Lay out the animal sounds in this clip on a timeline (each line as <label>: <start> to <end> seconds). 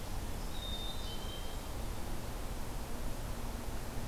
American Goldfinch (Spinus tristis): 0.4 to 1.4 seconds
Black-capped Chickadee (Poecile atricapillus): 0.4 to 1.6 seconds